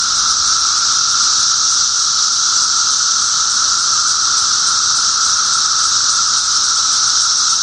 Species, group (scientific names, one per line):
Magicicada septendecula
Cicadidae